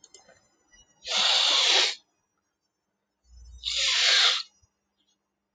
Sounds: Sniff